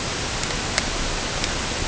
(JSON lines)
{"label": "ambient", "recorder": "HydroMoth"}